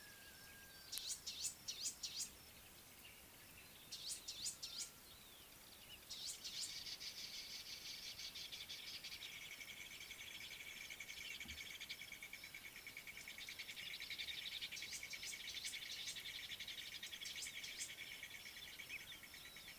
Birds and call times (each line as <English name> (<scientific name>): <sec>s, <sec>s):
Variable Sunbird (Cinnyris venustus): 4.3s, 15.3s
Brown Babbler (Turdoides plebejus): 8.3s